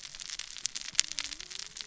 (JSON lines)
{"label": "biophony, cascading saw", "recorder": "SoundTrap 600 or HydroMoth"}